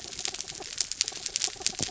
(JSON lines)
{"label": "anthrophony, mechanical", "recorder": "SoundTrap 300"}